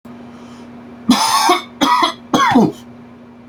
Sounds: Cough